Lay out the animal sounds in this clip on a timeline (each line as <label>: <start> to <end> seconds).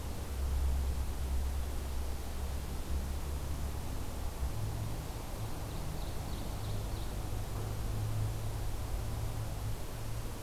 Ovenbird (Seiurus aurocapilla): 5.2 to 7.2 seconds